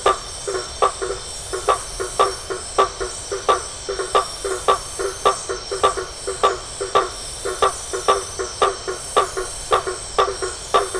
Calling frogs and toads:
Boana faber
Atlantic Forest, 9:30pm

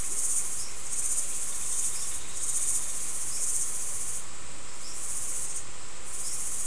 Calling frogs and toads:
none
Atlantic Forest, 6:45pm

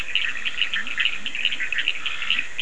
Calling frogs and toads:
Boana bischoffi, Leptodactylus latrans, Scinax perereca, Sphaenorhynchus surdus
Atlantic Forest, 1:30am

